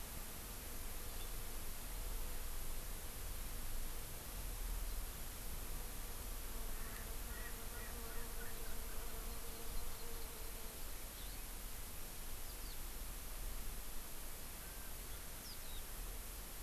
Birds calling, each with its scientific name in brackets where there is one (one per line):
Hawaii Amakihi (Chlorodrepanis virens)
Erckel's Francolin (Pternistis erckelii)
Eurasian Skylark (Alauda arvensis)